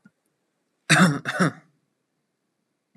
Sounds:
Cough